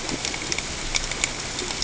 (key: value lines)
label: ambient
recorder: HydroMoth